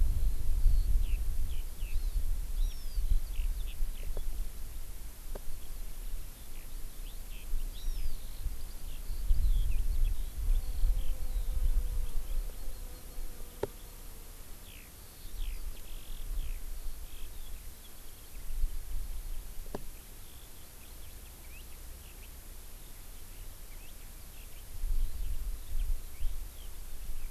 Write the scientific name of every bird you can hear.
Alauda arvensis, Chlorodrepanis virens